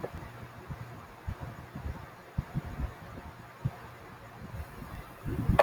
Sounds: Laughter